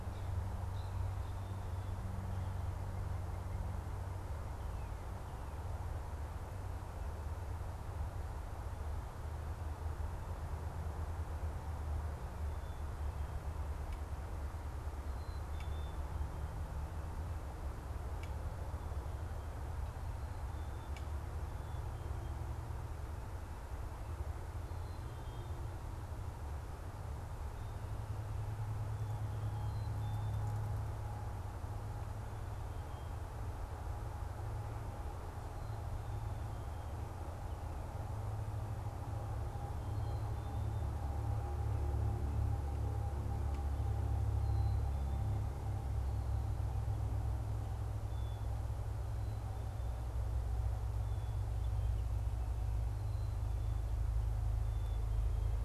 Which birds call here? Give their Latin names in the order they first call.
unidentified bird, Poecile atricapillus